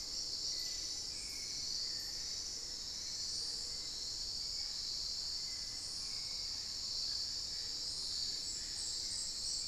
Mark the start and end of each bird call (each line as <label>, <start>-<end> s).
Hauxwell's Thrush (Turdus hauxwelli), 0.0-9.7 s